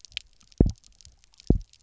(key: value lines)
label: biophony, double pulse
recorder: SoundTrap 300